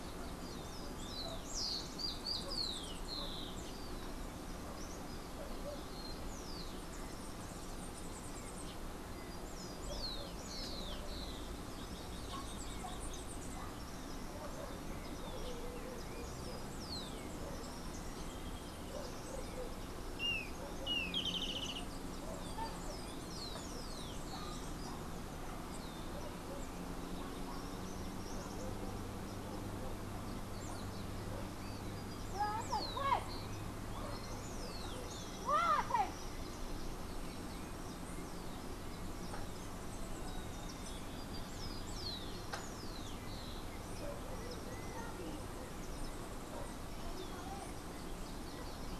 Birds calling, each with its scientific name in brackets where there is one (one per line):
Rufous-collared Sparrow (Zonotrichia capensis)
unidentified bird
Golden-faced Tyrannulet (Zimmerius chrysops)